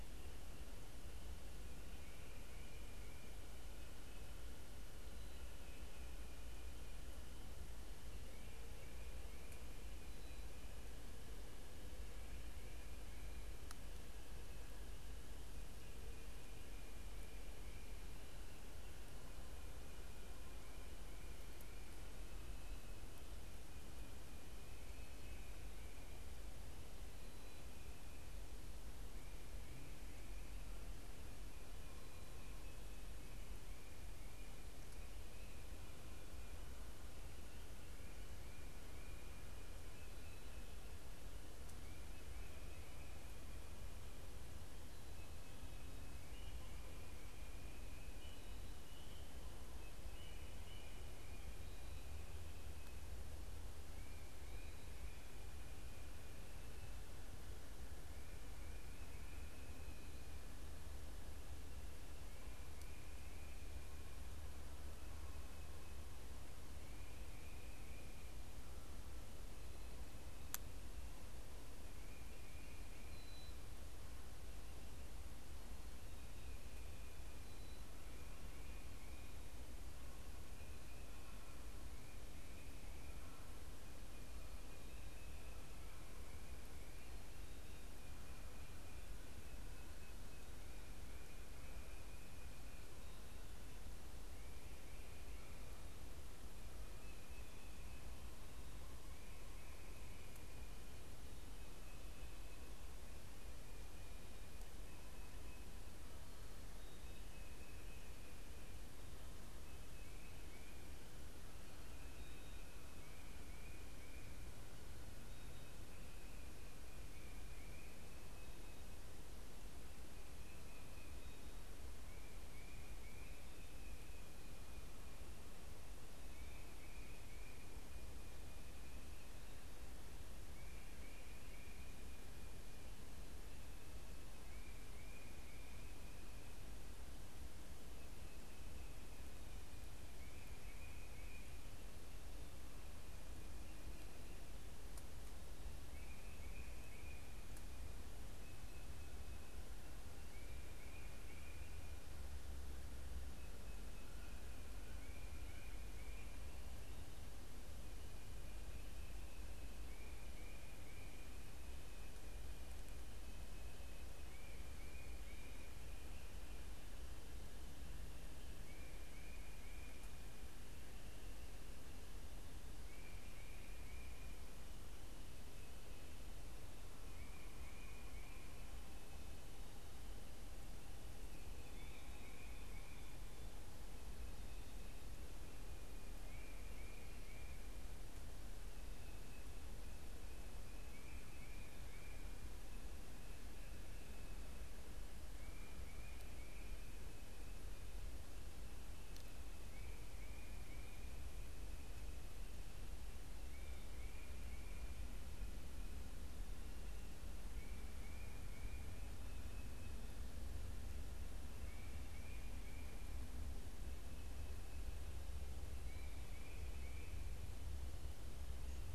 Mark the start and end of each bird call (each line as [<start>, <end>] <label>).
[73.16, 73.96] unidentified bird
[96.86, 98.26] Tufted Titmouse (Baeolophus bicolor)
[120.16, 178.96] Tufted Titmouse (Baeolophus bicolor)
[181.16, 218.94] Tufted Titmouse (Baeolophus bicolor)